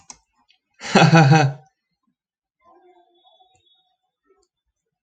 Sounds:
Laughter